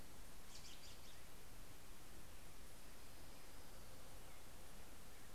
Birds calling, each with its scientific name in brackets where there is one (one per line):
Orange-crowned Warbler (Leiothlypis celata)
American Robin (Turdus migratorius)